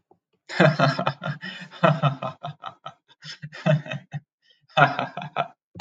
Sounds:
Laughter